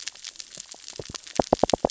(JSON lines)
{"label": "biophony, knock", "recorder": "SoundTrap 600 or HydroMoth"}